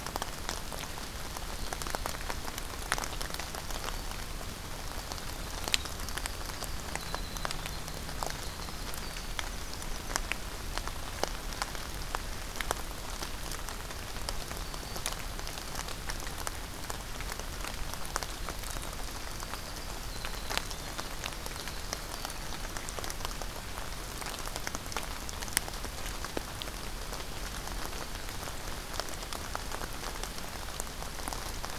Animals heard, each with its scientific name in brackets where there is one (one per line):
Winter Wren (Troglodytes hiemalis)
Black-throated Green Warbler (Setophaga virens)